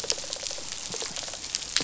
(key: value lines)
label: biophony, rattle response
recorder: SoundTrap 500